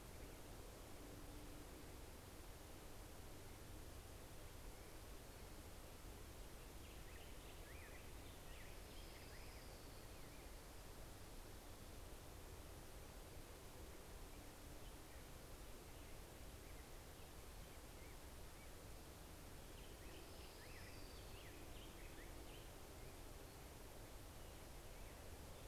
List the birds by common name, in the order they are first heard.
American Robin, Orange-crowned Warbler